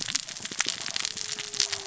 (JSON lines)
{"label": "biophony, cascading saw", "recorder": "SoundTrap 600 or HydroMoth"}